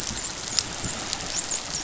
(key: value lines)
label: biophony, dolphin
recorder: SoundTrap 500